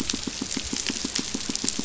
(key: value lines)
label: biophony, pulse
recorder: SoundTrap 500